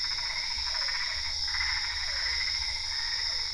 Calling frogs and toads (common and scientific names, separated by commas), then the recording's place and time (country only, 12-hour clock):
Boana albopunctata, Physalaemus cuvieri
Brazil, 8:15pm